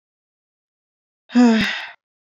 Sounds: Sigh